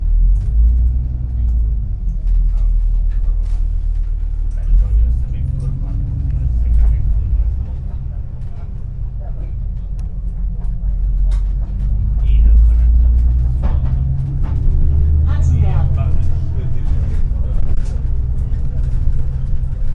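A transport vehicle is moving with muffled conversation in the background. 0.0 - 19.9

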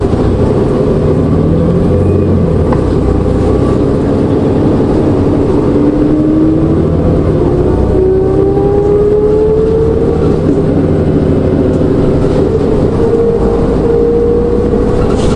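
A bus engine running. 0.0 - 15.4

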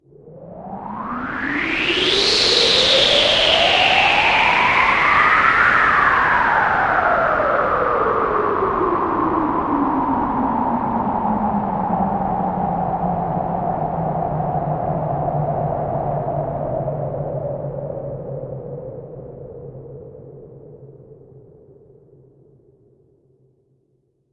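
A strong stream of air blows with a loud artificial sound that increases and then decreases in volume. 0.0 - 22.2

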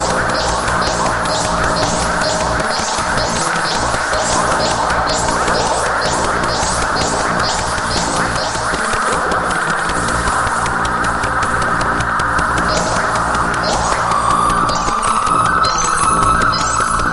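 Futuristic noises continue steadily with changing beats. 0.0 - 17.1

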